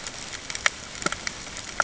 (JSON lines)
{"label": "ambient", "recorder": "HydroMoth"}